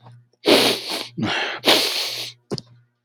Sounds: Sniff